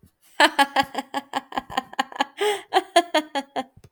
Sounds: Laughter